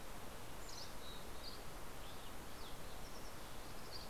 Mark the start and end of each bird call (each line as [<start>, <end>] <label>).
[0.10, 1.70] Mountain Chickadee (Poecile gambeli)
[0.30, 1.70] Dusky Flycatcher (Empidonax oberholseri)